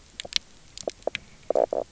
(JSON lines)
{"label": "biophony, knock croak", "recorder": "SoundTrap 300"}